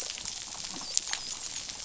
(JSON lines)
{"label": "biophony, dolphin", "recorder": "SoundTrap 500"}